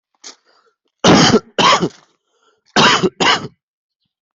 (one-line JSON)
{"expert_labels": [{"quality": "ok", "cough_type": "dry", "dyspnea": false, "wheezing": false, "stridor": false, "choking": false, "congestion": false, "nothing": true, "diagnosis": "COVID-19", "severity": "mild"}], "gender": "female", "respiratory_condition": true, "fever_muscle_pain": true, "status": "COVID-19"}